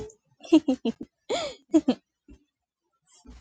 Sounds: Laughter